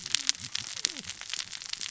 {"label": "biophony, cascading saw", "recorder": "SoundTrap 600 or HydroMoth"}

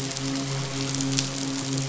{"label": "biophony, midshipman", "recorder": "SoundTrap 500"}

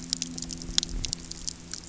{"label": "anthrophony, boat engine", "recorder": "SoundTrap 300"}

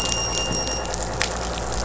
{"label": "anthrophony, boat engine", "recorder": "SoundTrap 500"}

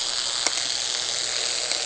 {"label": "anthrophony, boat engine", "recorder": "HydroMoth"}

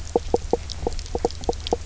{"label": "biophony, knock croak", "recorder": "SoundTrap 300"}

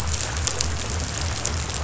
{"label": "biophony", "recorder": "SoundTrap 500"}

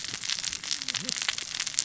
{"label": "biophony, cascading saw", "recorder": "SoundTrap 600 or HydroMoth"}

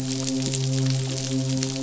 {"label": "biophony, midshipman", "recorder": "SoundTrap 500"}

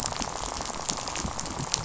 {"label": "biophony, rattle", "recorder": "SoundTrap 500"}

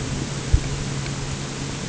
{"label": "anthrophony, boat engine", "recorder": "HydroMoth"}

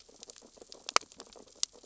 {"label": "biophony, sea urchins (Echinidae)", "recorder": "SoundTrap 600 or HydroMoth"}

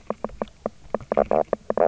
{"label": "biophony, knock croak", "recorder": "SoundTrap 300"}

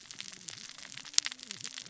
{"label": "biophony, cascading saw", "recorder": "SoundTrap 600 or HydroMoth"}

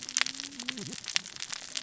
{"label": "biophony, cascading saw", "recorder": "SoundTrap 600 or HydroMoth"}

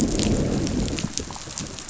{"label": "biophony, growl", "recorder": "SoundTrap 500"}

